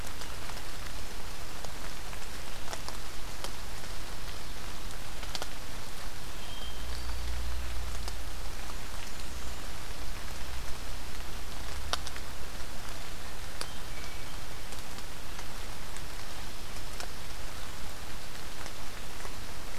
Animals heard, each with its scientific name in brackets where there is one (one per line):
Hermit Thrush (Catharus guttatus)
Blackburnian Warbler (Setophaga fusca)